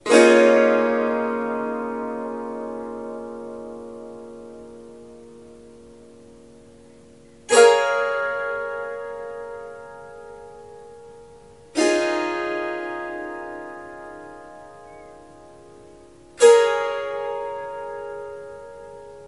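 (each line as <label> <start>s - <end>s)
A person is playing the guitar. 0.0s - 19.3s
A person produces a melodic sound with noticeable echo. 0.0s - 19.3s
The sound gradually fades. 0.0s - 19.3s
A person is whistling. 14.8s - 15.1s
A quiet whistling can still be heard. 14.8s - 15.1s
A whistle sounds briefly without variation. 14.8s - 15.1s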